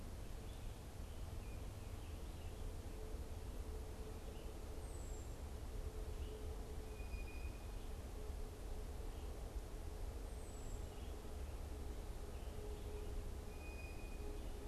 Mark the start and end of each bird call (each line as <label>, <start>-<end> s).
unidentified bird, 4.7-11.1 s
Blue Jay (Cyanocitta cristata), 6.7-14.6 s